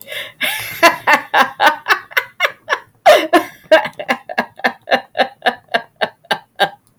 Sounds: Laughter